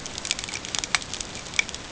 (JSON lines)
{"label": "ambient", "recorder": "HydroMoth"}